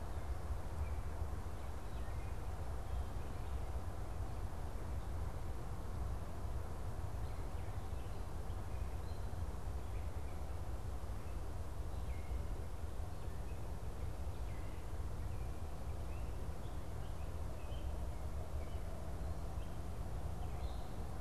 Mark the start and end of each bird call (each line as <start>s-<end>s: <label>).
0.0s-21.1s: Gray Catbird (Dumetella carolinensis)